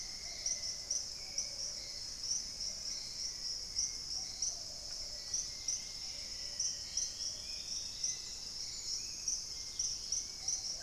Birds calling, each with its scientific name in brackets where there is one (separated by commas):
Plumbeous Pigeon (Patagioenas plumbea), Dusky-capped Greenlet (Pachysylvia hypoxantha), Golden-crowned Spadebill (Platyrinchus coronatus), Cinnamon-rumped Foliage-gleaner (Philydor pyrrhodes), Hauxwell's Thrush (Turdus hauxwelli), Dusky-throated Antshrike (Thamnomanes ardesiacus), Black-faced Antthrush (Formicarius analis), Spot-winged Antshrike (Pygiptila stellaris)